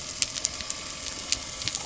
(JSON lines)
{"label": "anthrophony, boat engine", "recorder": "SoundTrap 300"}